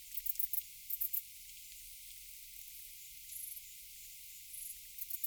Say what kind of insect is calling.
orthopteran